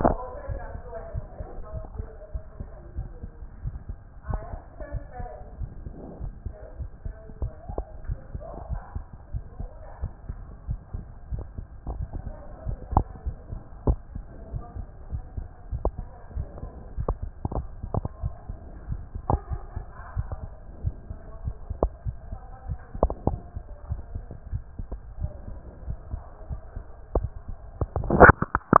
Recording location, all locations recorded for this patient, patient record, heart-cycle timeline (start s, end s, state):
aortic valve (AV)
aortic valve (AV)+pulmonary valve (PV)+tricuspid valve (TV)+mitral valve (MV)
#Age: nan
#Sex: Male
#Height: 133.0 cm
#Weight: 35.2 kg
#Pregnancy status: False
#Murmur: Absent
#Murmur locations: nan
#Most audible location: nan
#Systolic murmur timing: nan
#Systolic murmur shape: nan
#Systolic murmur grading: nan
#Systolic murmur pitch: nan
#Systolic murmur quality: nan
#Diastolic murmur timing: nan
#Diastolic murmur shape: nan
#Diastolic murmur grading: nan
#Diastolic murmur pitch: nan
#Diastolic murmur quality: nan
#Outcome: Normal
#Campaign: 2014 screening campaign
0.00	1.14	unannotated
1.14	1.26	S1
1.26	1.38	systole
1.38	1.46	S2
1.46	1.74	diastole
1.74	1.84	S1
1.84	1.98	systole
1.98	2.08	S2
2.08	2.32	diastole
2.32	2.42	S1
2.42	2.58	systole
2.58	2.68	S2
2.68	2.96	diastole
2.96	3.08	S1
3.08	3.22	systole
3.22	3.32	S2
3.32	3.64	diastole
3.64	3.76	S1
3.76	3.88	systole
3.88	3.98	S2
3.98	4.28	diastole
4.28	4.42	S1
4.42	4.52	systole
4.52	4.62	S2
4.62	4.92	diastole
4.92	5.04	S1
5.04	5.18	systole
5.18	5.30	S2
5.30	5.58	diastole
5.58	5.70	S1
5.70	5.84	systole
5.84	5.94	S2
5.94	6.20	diastole
6.20	6.32	S1
6.32	6.46	systole
6.46	6.54	S2
6.54	6.78	diastole
6.78	6.90	S1
6.90	7.04	systole
7.04	7.14	S2
7.14	7.40	diastole
7.40	7.52	S1
7.52	7.70	systole
7.70	7.84	S2
7.84	8.08	diastole
8.08	8.18	S1
8.18	8.34	systole
8.34	8.42	S2
8.42	8.70	diastole
8.70	8.82	S1
8.82	8.94	systole
8.94	9.04	S2
9.04	9.32	diastole
9.32	9.44	S1
9.44	9.60	systole
9.60	9.70	S2
9.70	10.02	diastole
10.02	10.12	S1
10.12	10.28	systole
10.28	10.38	S2
10.38	10.68	diastole
10.68	10.80	S1
10.80	10.94	systole
10.94	11.04	S2
11.04	11.32	diastole
11.32	11.44	S1
11.44	11.58	systole
11.58	11.66	S2
11.66	11.88	diastole
11.88	12.02	S1
12.02	12.14	systole
12.14	12.22	S2
12.22	12.66	diastole
12.66	12.78	S1
12.78	12.92	systole
12.92	13.06	S2
13.06	13.26	diastole
13.26	13.36	S1
13.36	13.52	systole
13.52	13.62	S2
13.62	13.84	diastole
13.84	13.98	S1
13.98	14.14	systole
14.14	14.24	S2
14.24	14.52	diastole
14.52	14.64	S1
14.64	14.76	systole
14.76	14.86	S2
14.86	15.12	diastole
15.12	15.24	S1
15.24	15.36	systole
15.36	15.46	S2
15.46	15.72	diastole
15.72	15.84	S1
15.84	15.98	systole
15.98	16.08	S2
16.08	16.34	diastole
16.34	16.48	S1
16.48	16.62	systole
16.62	16.70	S2
16.70	16.98	diastole
16.98	28.80	unannotated